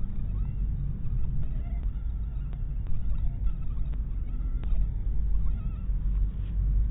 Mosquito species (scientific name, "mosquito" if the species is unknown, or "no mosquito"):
mosquito